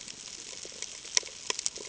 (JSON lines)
{"label": "ambient", "recorder": "HydroMoth"}